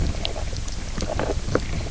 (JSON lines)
{"label": "biophony, knock croak", "recorder": "SoundTrap 300"}